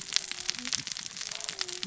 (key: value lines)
label: biophony, cascading saw
recorder: SoundTrap 600 or HydroMoth